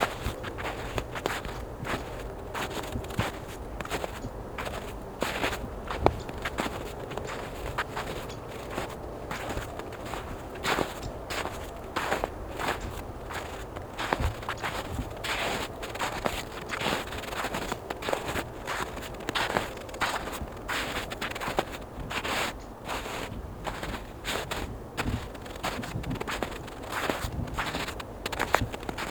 Is the person singing?
no